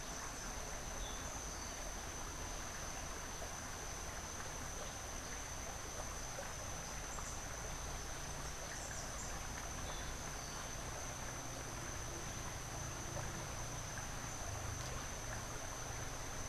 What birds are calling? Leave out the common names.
Catharus aurantiirostris